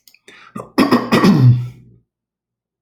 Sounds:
Throat clearing